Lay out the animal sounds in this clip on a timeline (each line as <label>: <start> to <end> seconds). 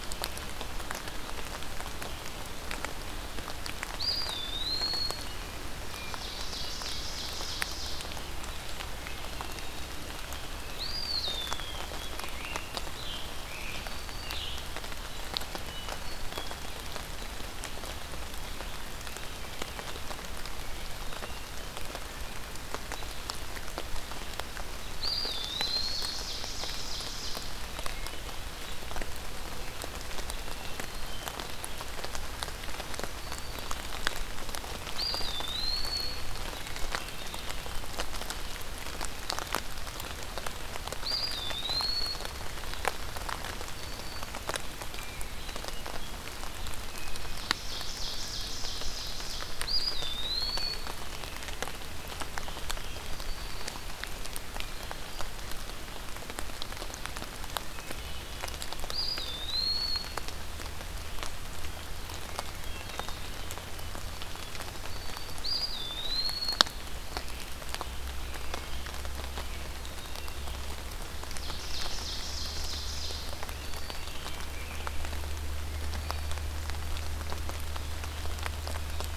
Eastern Wood-Pewee (Contopus virens): 3.8 to 5.3 seconds
Ovenbird (Seiurus aurocapilla): 5.8 to 8.2 seconds
Hermit Thrush (Catharus guttatus): 5.8 to 6.9 seconds
Hermit Thrush (Catharus guttatus): 8.9 to 10.0 seconds
Eastern Wood-Pewee (Contopus virens): 10.6 to 11.9 seconds
Scarlet Tanager (Piranga olivacea): 12.0 to 14.7 seconds
Black-throated Green Warbler (Setophaga virens): 13.2 to 14.7 seconds
Hermit Thrush (Catharus guttatus): 15.6 to 16.8 seconds
Hermit Thrush (Catharus guttatus): 24.9 to 26.2 seconds
Ovenbird (Seiurus aurocapilla): 25.4 to 27.4 seconds
Hermit Thrush (Catharus guttatus): 27.7 to 28.6 seconds
Hermit Thrush (Catharus guttatus): 30.2 to 31.4 seconds
Black-throated Green Warbler (Setophaga virens): 33.0 to 34.0 seconds
Eastern Wood-Pewee (Contopus virens): 34.8 to 36.3 seconds
Hermit Thrush (Catharus guttatus): 36.4 to 37.7 seconds
Eastern Wood-Pewee (Contopus virens): 41.0 to 42.5 seconds
Hermit Thrush (Catharus guttatus): 44.8 to 45.9 seconds
Ovenbird (Seiurus aurocapilla): 47.3 to 49.6 seconds
Eastern Wood-Pewee (Contopus virens): 49.5 to 51.2 seconds
Black-throated Green Warbler (Setophaga virens): 52.8 to 54.0 seconds
Hermit Thrush (Catharus guttatus): 57.4 to 58.6 seconds
Eastern Wood-Pewee (Contopus virens): 58.7 to 60.1 seconds
Hermit Thrush (Catharus guttatus): 62.2 to 63.1 seconds
Eastern Wood-Pewee (Contopus virens): 65.3 to 67.1 seconds
Hermit Thrush (Catharus guttatus): 69.7 to 70.7 seconds
Ovenbird (Seiurus aurocapilla): 71.2 to 73.3 seconds
Black-throated Green Warbler (Setophaga virens): 73.1 to 74.3 seconds